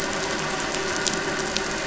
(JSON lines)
{"label": "anthrophony, boat engine", "recorder": "SoundTrap 500"}